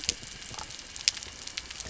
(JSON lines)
{"label": "anthrophony, boat engine", "recorder": "SoundTrap 300"}
{"label": "biophony", "recorder": "SoundTrap 300"}